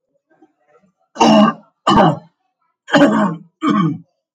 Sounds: Throat clearing